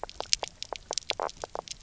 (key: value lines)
label: biophony, knock croak
recorder: SoundTrap 300